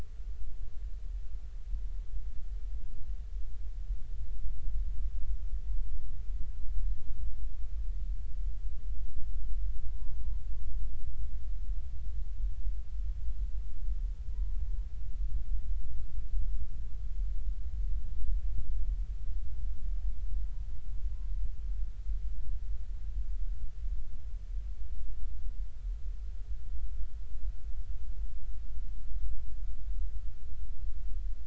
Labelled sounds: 9.9	10.4	humpback whale, 0.90 to 1.1 kHz
14.3	14.6	humpback whale, 0.93 to 1.0 kHz

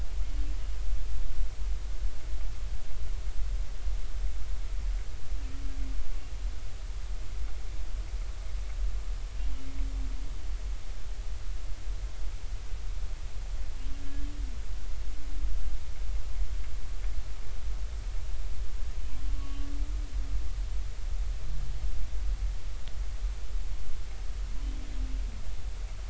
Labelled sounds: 19.3	19.6	humpback whale, 1.1 to 1.2 kHz

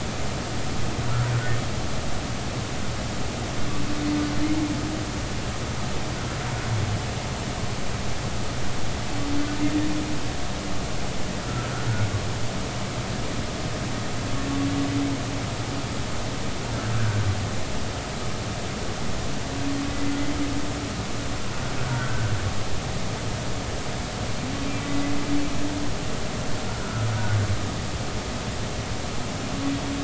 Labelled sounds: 11.4	11.7	humpback whale, 1.3 to 1.4 kHz
17.0	17.2	humpback whale, 1.4 to 1.7 kHz
21.8	22.3	humpback whale, 1.3 to 1.6 kHz
24.8	25.1	humpback whale, 1.9 to 2.0 kHz
26.8	27.1	humpback whale, 1.3 to 1.6 kHz

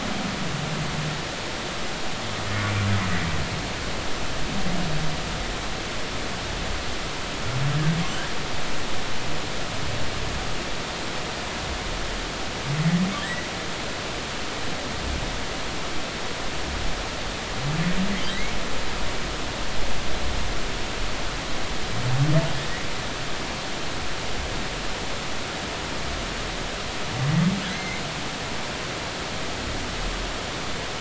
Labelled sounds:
13.2	13.5	humpback whale, 1.7 to 2.0 kHz
27.7	28.0	humpback whale, 2.0 to 2.3 kHz

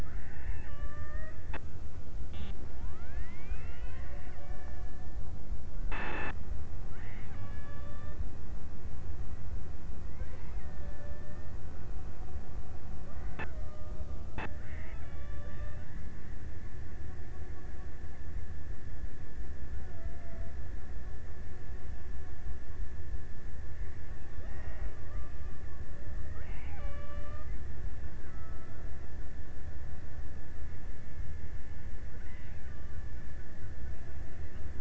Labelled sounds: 0.0	1.8	killer whale, Bigg's (transient), 0.31 to 3.1 kHz
6.6	8.5	killer whale, Bigg's (transient), 0.18 to 3.2 kHz
10.2	12.4	killer whale, Bigg's (transient), 0.33 to 2.7 kHz
14.1	16.4	killer whale, Bigg's (transient), 0.51 to 3.0 kHz
19.5	21.1	killer whale, Bigg's (transient), 0.43 to 1.0 kHz
23.9	25.7	killer whale, Bigg's (transient), 0.31 to 2.3 kHz
26.1	28.1	killer whale, Bigg's (transient), 0.43 to 3.3 kHz
31.8	33.6	killer whale, Bigg's (transient), 1.5 to 3.0 kHz

